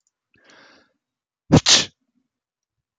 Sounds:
Sneeze